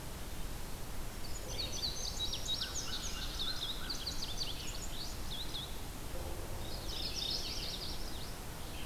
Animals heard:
American Crow (Corvus brachyrhynchos), Red-eyed Vireo (Vireo olivaceus), Mourning Warbler (Geothlypis philadelphia), Yellow-rumped Warbler (Setophaga coronata), Indigo Bunting (Passerina cyanea)

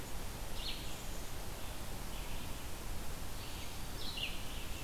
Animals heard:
Red-eyed Vireo (Vireo olivaceus), Black-capped Chickadee (Poecile atricapillus)

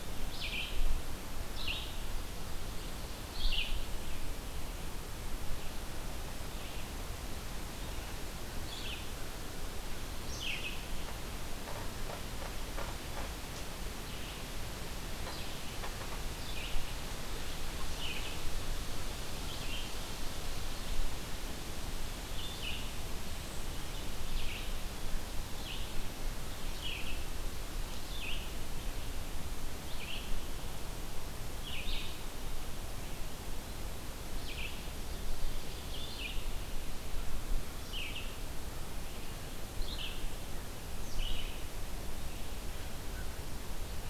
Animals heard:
Ovenbird (Seiurus aurocapilla), Red-eyed Vireo (Vireo olivaceus)

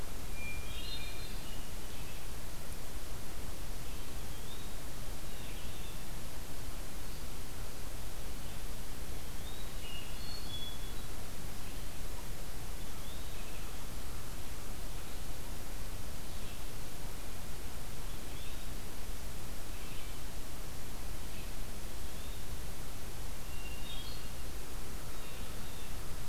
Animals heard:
Blue Jay (Cyanocitta cristata), Hermit Thrush (Catharus guttatus), Blue-headed Vireo (Vireo solitarius), Eastern Wood-Pewee (Contopus virens)

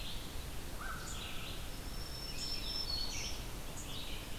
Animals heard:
Black-throated Green Warbler (Setophaga virens), Red-eyed Vireo (Vireo olivaceus), unknown mammal

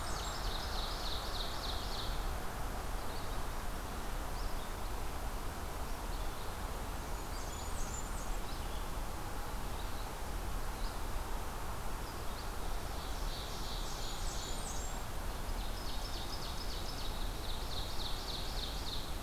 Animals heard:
Ovenbird (Seiurus aurocapilla), Blackburnian Warbler (Setophaga fusca), Red-eyed Vireo (Vireo olivaceus)

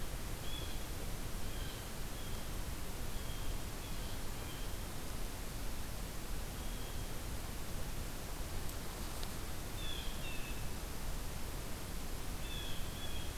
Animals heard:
Blue Jay (Cyanocitta cristata)

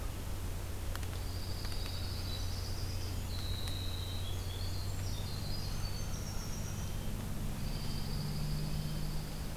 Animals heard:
Red-breasted Nuthatch (Sitta canadensis), Winter Wren (Troglodytes hiemalis), Dark-eyed Junco (Junco hyemalis)

